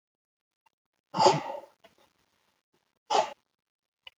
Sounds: Sneeze